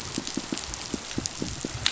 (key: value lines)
label: biophony, pulse
recorder: SoundTrap 500